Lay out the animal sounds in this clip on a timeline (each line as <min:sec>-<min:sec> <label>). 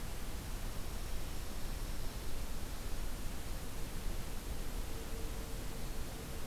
0:00.5-0:02.4 Dark-eyed Junco (Junco hyemalis)